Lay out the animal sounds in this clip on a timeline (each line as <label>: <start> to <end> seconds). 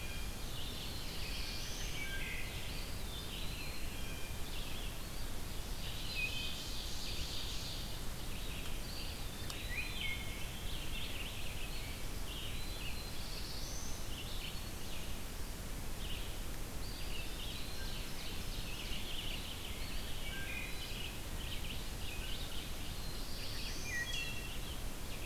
Blue Jay (Cyanocitta cristata): 0.0 to 2.0 seconds
Red-eyed Vireo (Vireo olivaceus): 0.0 to 5.0 seconds
Black-throated Blue Warbler (Setophaga caerulescens): 0.4 to 2.1 seconds
Wood Thrush (Hylocichla mustelina): 1.8 to 2.6 seconds
Eastern Wood-Pewee (Contopus virens): 2.6 to 4.0 seconds
Blue Jay (Cyanocitta cristata): 3.8 to 4.5 seconds
Ovenbird (Seiurus aurocapilla): 5.5 to 7.9 seconds
Red-eyed Vireo (Vireo olivaceus): 5.7 to 25.3 seconds
Wood Thrush (Hylocichla mustelina): 6.0 to 6.7 seconds
Eastern Wood-Pewee (Contopus virens): 8.7 to 10.1 seconds
Wood Thrush (Hylocichla mustelina): 9.6 to 10.5 seconds
Eastern Wood-Pewee (Contopus virens): 11.6 to 12.9 seconds
Black-throated Blue Warbler (Setophaga caerulescens): 12.5 to 14.2 seconds
Black-throated Green Warbler (Setophaga virens): 13.8 to 15.2 seconds
Eastern Wood-Pewee (Contopus virens): 16.8 to 18.0 seconds
Ovenbird (Seiurus aurocapilla): 17.1 to 19.5 seconds
Eastern Wood-Pewee (Contopus virens): 19.6 to 21.0 seconds
Wood Thrush (Hylocichla mustelina): 20.1 to 20.8 seconds
Black-throated Blue Warbler (Setophaga caerulescens): 22.7 to 24.2 seconds
Wood Thrush (Hylocichla mustelina): 23.7 to 24.7 seconds